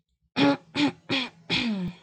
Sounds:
Throat clearing